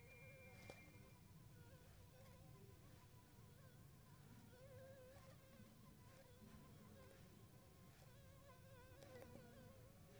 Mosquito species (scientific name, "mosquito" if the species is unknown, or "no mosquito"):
Anopheles funestus s.s.